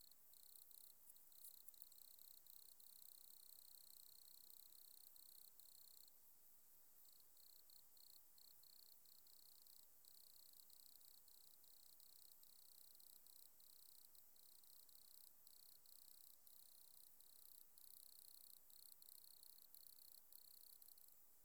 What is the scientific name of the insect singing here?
Nemobius sylvestris